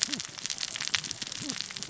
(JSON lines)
{"label": "biophony, cascading saw", "recorder": "SoundTrap 600 or HydroMoth"}